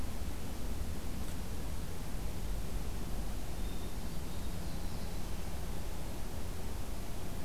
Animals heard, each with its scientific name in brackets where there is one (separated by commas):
Black-throated Blue Warbler (Setophaga caerulescens), Hermit Thrush (Catharus guttatus)